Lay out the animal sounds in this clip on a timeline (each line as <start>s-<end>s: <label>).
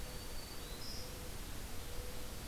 0.0s-1.1s: Black-throated Green Warbler (Setophaga virens)
0.0s-2.4s: Mourning Dove (Zenaida macroura)